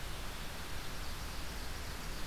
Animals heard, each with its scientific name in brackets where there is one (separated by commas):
Ovenbird (Seiurus aurocapilla)